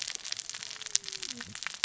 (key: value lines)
label: biophony, cascading saw
recorder: SoundTrap 600 or HydroMoth